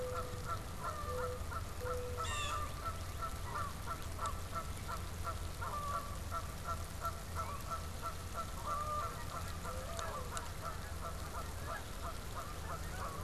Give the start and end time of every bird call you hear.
[0.00, 2.28] Mourning Dove (Zenaida macroura)
[0.00, 13.24] Canada Goose (Branta canadensis)
[2.08, 2.68] Blue Jay (Cyanocitta cristata)
[7.28, 7.68] Northern Cardinal (Cardinalis cardinalis)
[12.38, 13.24] Northern Cardinal (Cardinalis cardinalis)

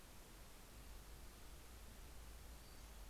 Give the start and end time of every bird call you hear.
[2.19, 3.09] Pacific-slope Flycatcher (Empidonax difficilis)

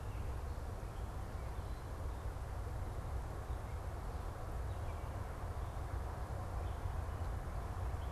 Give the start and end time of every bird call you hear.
[0.00, 8.12] Gray Catbird (Dumetella carolinensis)

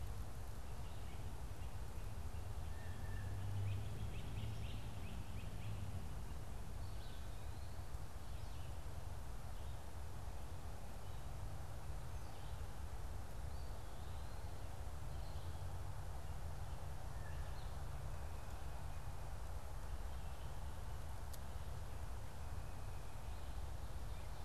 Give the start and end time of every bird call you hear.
[2.41, 3.41] Blue Jay (Cyanocitta cristata)
[3.41, 5.81] Great Crested Flycatcher (Myiarchus crinitus)
[17.01, 17.61] Blue Jay (Cyanocitta cristata)

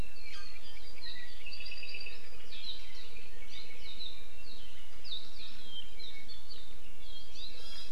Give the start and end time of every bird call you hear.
[0.73, 2.23] Apapane (Himatione sanguinea)

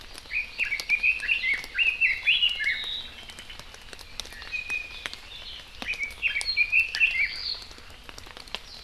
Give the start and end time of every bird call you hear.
[0.00, 1.70] Hawaii Amakihi (Chlorodrepanis virens)
[0.30, 2.90] Red-billed Leiothrix (Leiothrix lutea)
[4.30, 5.10] Iiwi (Drepanis coccinea)
[5.80, 7.40] Red-billed Leiothrix (Leiothrix lutea)

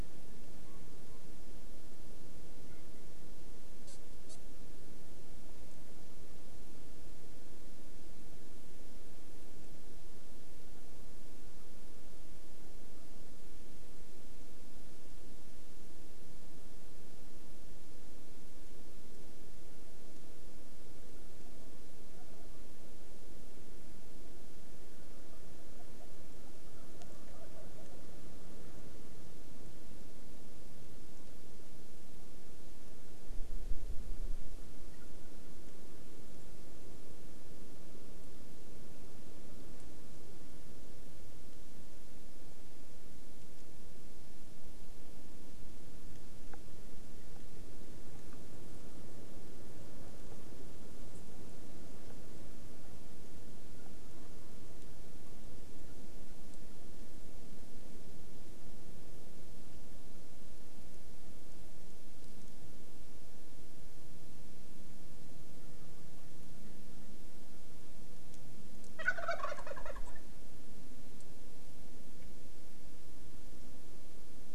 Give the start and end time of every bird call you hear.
[68.95, 70.16] Wild Turkey (Meleagris gallopavo)

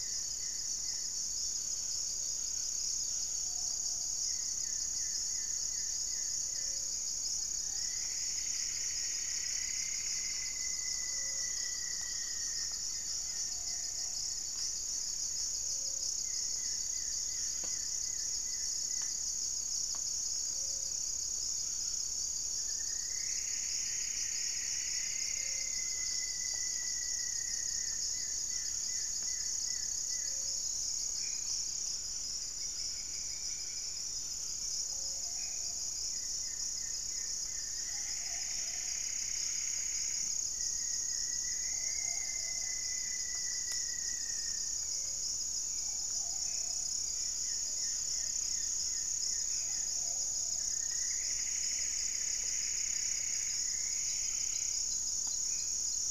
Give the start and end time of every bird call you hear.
[0.00, 19.43] Goeldi's Antbird (Akletos goeldii)
[0.00, 34.73] Buff-breasted Wren (Cantorchilus leucotis)
[0.00, 50.42] Gray-fronted Dove (Leptotila rufaxilla)
[2.92, 4.62] Plumbeous Pigeon (Patagioenas plumbea)
[7.62, 10.62] Plumbeous Antbird (Myrmelastes hyperythrus)
[8.72, 12.82] Rufous-fronted Antthrush (Formicarius rufifrons)
[9.93, 13.72] Great Antshrike (Taraba major)
[13.12, 14.43] Plumbeous Pigeon (Patagioenas plumbea)
[22.52, 25.82] Plumbeous Antbird (Myrmelastes hyperythrus)
[24.32, 28.32] Rufous-fronted Antthrush (Formicarius rufifrons)
[27.02, 30.62] Goeldi's Antbird (Akletos goeldii)
[31.02, 35.92] Black-faced Antthrush (Formicarius analis)
[32.52, 34.33] Little Woodpecker (Dryobates passerinus)
[34.83, 50.92] Plumbeous Pigeon (Patagioenas plumbea)
[36.02, 38.52] Goeldi's Antbird (Akletos goeldii)
[37.62, 40.42] Plumbeous Antbird (Myrmelastes hyperythrus)
[40.52, 44.83] Rufous-fronted Antthrush (Formicarius rufifrons)
[41.12, 50.23] Goeldi's Antbird (Akletos goeldii)
[46.12, 50.02] Black-faced Antthrush (Formicarius analis)
[46.83, 49.83] unidentified bird
[50.52, 55.02] Plumbeous Antbird (Myrmelastes hyperythrus)
[55.33, 55.83] Black-faced Antthrush (Formicarius analis)

